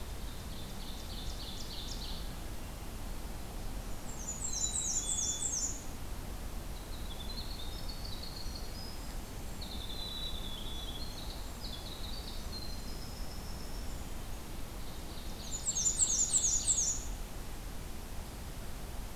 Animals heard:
Black-capped Chickadee (Poecile atricapillus), Ovenbird (Seiurus aurocapilla), Winter Wren (Troglodytes hiemalis), Black-and-white Warbler (Mniotilta varia)

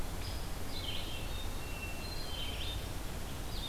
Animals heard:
Hermit Thrush (Catharus guttatus), Red-eyed Vireo (Vireo olivaceus), Hairy Woodpecker (Dryobates villosus)

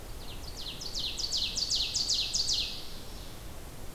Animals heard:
Ovenbird (Seiurus aurocapilla)

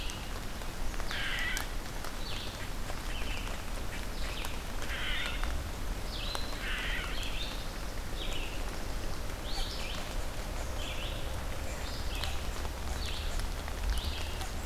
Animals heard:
Red-eyed Vireo (Vireo olivaceus), unknown mammal

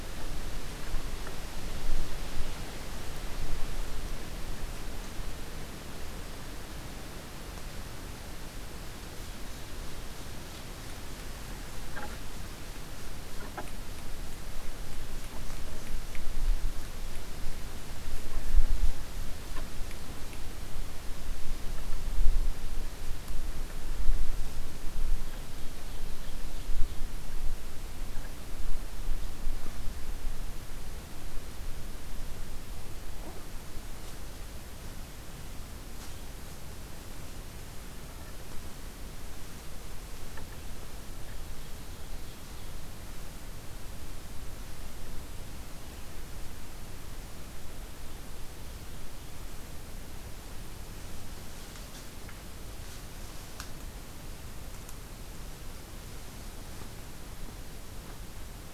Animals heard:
Ovenbird (Seiurus aurocapilla)

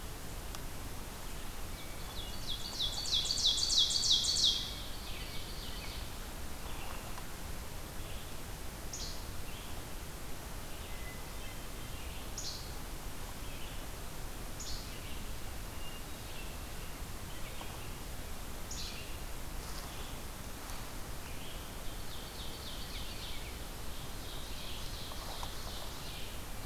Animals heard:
American Robin (Turdus migratorius), Ovenbird (Seiurus aurocapilla), Hermit Thrush (Catharus guttatus), Least Flycatcher (Empidonax minimus), Red-eyed Vireo (Vireo olivaceus)

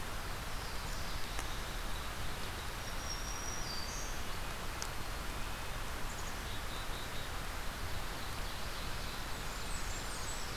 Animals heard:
Black-throated Green Warbler (Setophaga virens), Ovenbird (Seiurus aurocapilla), Black-capped Chickadee (Poecile atricapillus), Blackburnian Warbler (Setophaga fusca), Black-throated Blue Warbler (Setophaga caerulescens)

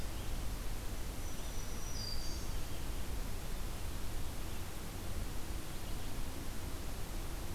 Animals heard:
Black-throated Green Warbler (Setophaga virens)

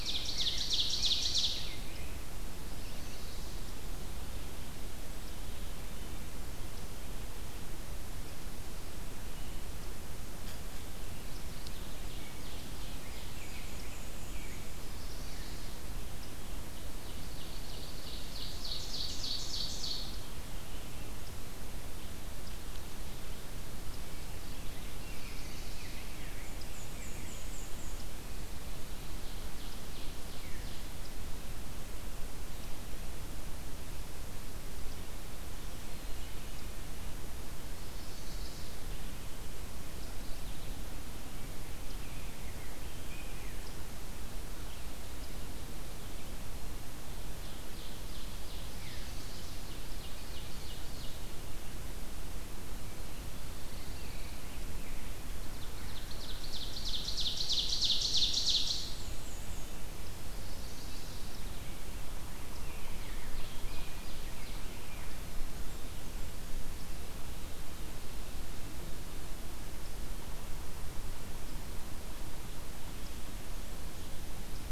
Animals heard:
Veery (Catharus fuscescens), Pine Warbler (Setophaga pinus), Blackburnian Warbler (Setophaga fusca), Black-and-white Warbler (Mniotilta varia), Chestnut-sided Warbler (Setophaga pensylvanica), Red-eyed Vireo (Vireo olivaceus), Mourning Warbler (Geothlypis philadelphia), Ovenbird (Seiurus aurocapilla), Rose-breasted Grosbeak (Pheucticus ludovicianus)

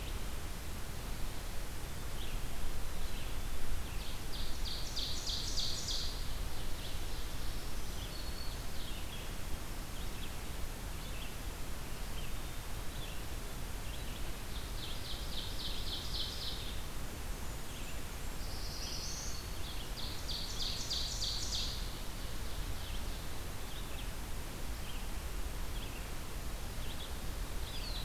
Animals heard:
Ovenbird (Seiurus aurocapilla), Red-eyed Vireo (Vireo olivaceus), Black-throated Blue Warbler (Setophaga caerulescens), Blackburnian Warbler (Setophaga fusca), Black-throated Green Warbler (Setophaga virens)

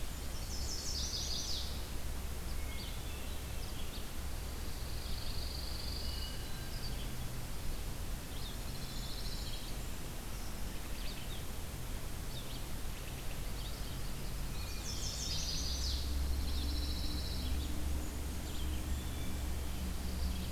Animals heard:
Eastern Wood-Pewee (Contopus virens), Blackburnian Warbler (Setophaga fusca), Pine Warbler (Setophaga pinus), Hermit Thrush (Catharus guttatus), Chestnut-sided Warbler (Setophaga pensylvanica), Red-eyed Vireo (Vireo olivaceus)

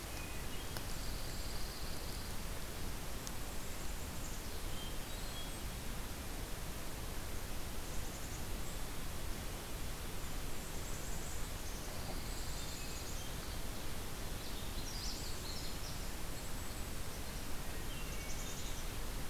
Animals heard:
Magnolia Warbler (Setophaga magnolia), Black-capped Chickadee (Poecile atricapillus), Golden-crowned Kinglet (Regulus satrapa), Pine Warbler (Setophaga pinus), Hermit Thrush (Catharus guttatus)

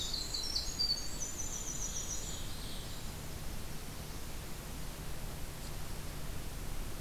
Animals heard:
Blackburnian Warbler (Setophaga fusca), Ovenbird (Seiurus aurocapilla), Golden-crowned Kinglet (Regulus satrapa), Winter Wren (Troglodytes hiemalis)

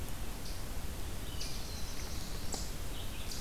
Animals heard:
Black-throated Blue Warbler (Setophaga caerulescens), Red-eyed Vireo (Vireo olivaceus)

